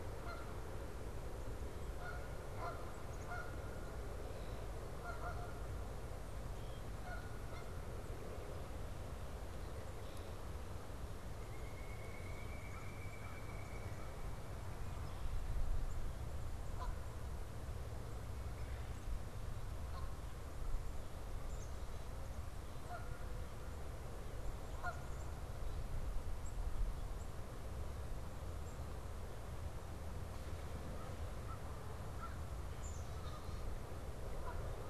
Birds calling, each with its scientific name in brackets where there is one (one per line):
Red-winged Blackbird (Agelaius phoeniceus)
Canada Goose (Branta canadensis)
Pileated Woodpecker (Dryocopus pileatus)
Black-capped Chickadee (Poecile atricapillus)
American Crow (Corvus brachyrhynchos)